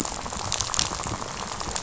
{"label": "biophony, rattle", "recorder": "SoundTrap 500"}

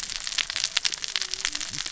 {"label": "biophony, cascading saw", "recorder": "SoundTrap 600 or HydroMoth"}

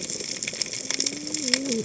{"label": "biophony, cascading saw", "recorder": "HydroMoth"}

